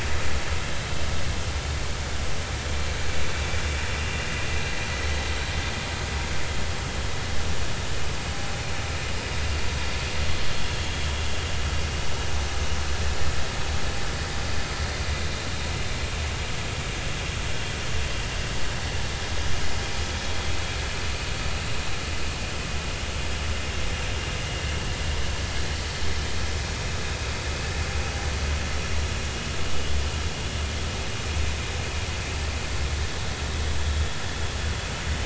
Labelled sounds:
4.0	4.2	vessel noise, 2.7 to 2.9 kHz

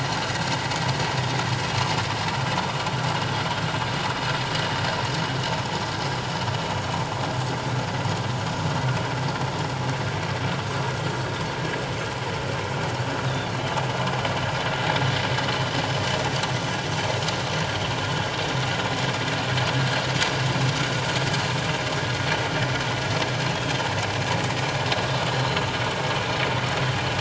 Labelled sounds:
13.2	13.5	Pacific white-sided dolphin, 3.3 to 3.9 kHz
25.3	25.7	Pacific white-sided dolphin, 4.0 to 6.9 kHz

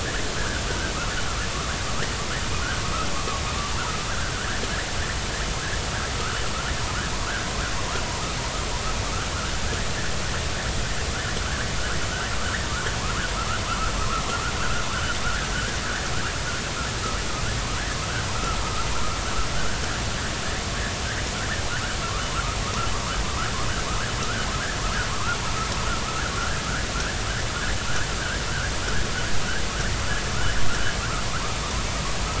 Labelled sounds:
0.4	0.6	vessel noise, 1.4 to 1.8 kHz
4.1	4.6	vessel noise, 1.3 to 1.8 kHz
15.2	15.8	vessel noise, 1.3 to 1.8 kHz
23.3	23.5	vessel noise, 1.1 to 1.5 kHz
24.2	24.5	vessel noise, 1.2 to 1.6 kHz
25.1	25.4	vessel noise, 0.96 to 1.5 kHz
26.4	26.6	vessel noise, 1.3 to 1.8 kHz
27.9	28.1	vessel noise, 1.3 to 1.8 kHz

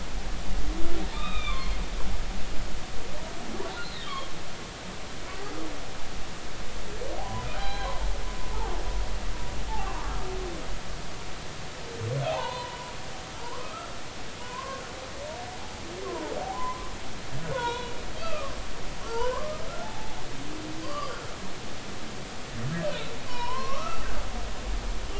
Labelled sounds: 1.1	1.8	humpback whale, 0.96 to 4.3 kHz
3.8	4.3	humpback whale, 1.0 to 4.3 kHz
7.2	7.9	humpback whale, 0.80 to 4.1 kHz
9.8	10.1	humpback whale, 0.90 to 1.2 kHz
12.2	12.9	humpback whale, 0.80 to 3.4 kHz
13.6	14.8	humpback whale, 0.93 to 1.4 kHz
16.0	16.9	humpback whale, 0.80 to 1.2 kHz
17.5	18.5	humpback whale, 0.90 to 4.0 kHz
19.0	21.2	humpback whale, 0.80 to 4.9 kHz
23.2	24.1	humpback whale, 0.90 to 5.5 kHz

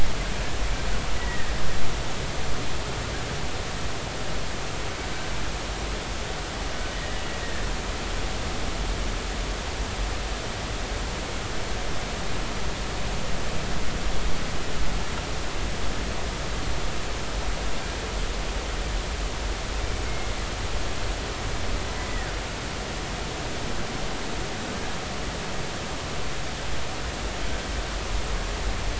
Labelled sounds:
1.2	1.5	killer whale, Bigg's (transient), 1.6 to 2.0 kHz
22.0	22.3	killer whale, Bigg's (transient), 1.7 to 2.0 kHz

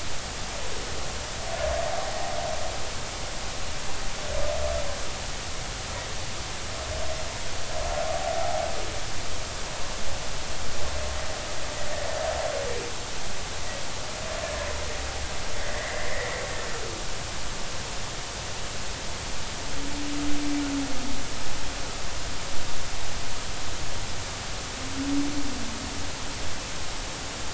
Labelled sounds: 8.4	8.6	humpback whale, 0.80 to 0.86 kHz
15.6	16.1	humpback whale, 1.7 to 2.1 kHz

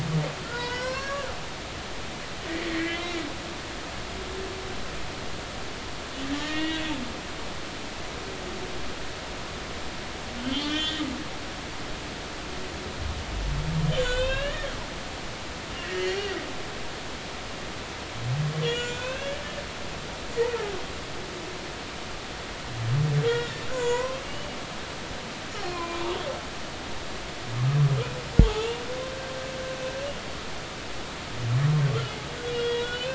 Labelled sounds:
0.5	1.3	humpback whale, 0.93 to 6.8 kHz
2.6	3.0	humpback whale, 1.8 to 2.4 kHz
6.3	6.8	humpback whale, 1.1 to 3.6 kHz
10.4	11.0	humpback whale, 1.4 to 3.8 kHz
14.0	14.7	humpback whale, 0.99 to 3.9 kHz
18.6	19.4	humpback whale, 1.4 to 7.3 kHz
23.3	24.2	humpback whale, 0.90 to 7.1 kHz
25.6	26.1	humpback whale, 0.96 to 2.5 kHz
28.4	28.8	humpback whale, 0.80 to 2.9 kHz
32.5	33.1	humpback whale, 1.4 to 7.1 kHz

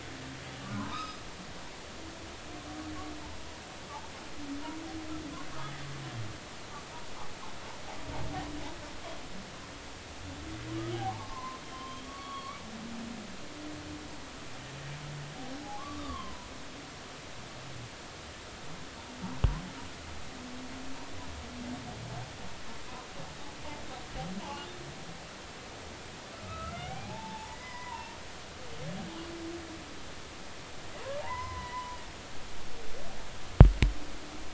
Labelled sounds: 0.7	1.2	humpback whale, 1.3 to 5.2 kHz
10.9	12.6	humpback whale, 0.80 to 3.4 kHz
15.8	16.5	humpback whale, 0.93 to 1.3 kHz
24.4	24.7	humpback whale, 0.80 to 2.9 kHz
26.7	28.2	humpback whale, 0.80 to 2.5 kHz
31.2	32.0	humpback whale, 0.80 to 4.1 kHz

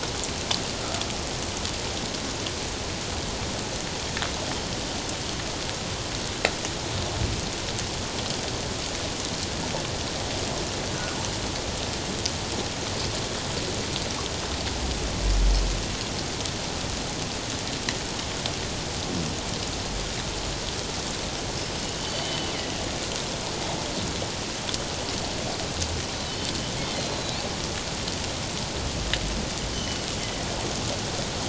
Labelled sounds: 0.7	1.0	killer whale, 1.2 to 1.4 kHz
22.0	22.5	killer whale, northern resident, G clan, 2.9 to 3.1 kHz
26.9	27.4	killer whale, northern resident, G clan, 3.8 to 4.2 kHz
29.7	30.0	killer whale, northern resident, G clan, 2.9 to 3.1 kHz

